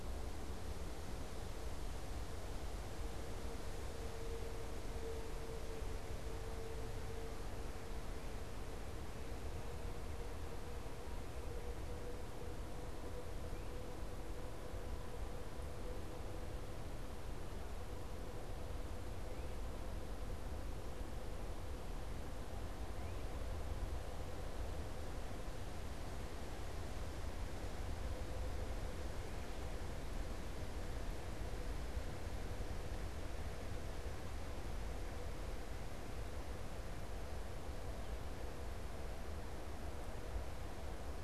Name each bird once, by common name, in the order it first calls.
Great Crested Flycatcher